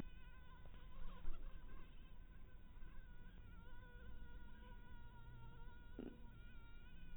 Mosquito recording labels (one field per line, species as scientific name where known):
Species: mosquito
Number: one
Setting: cup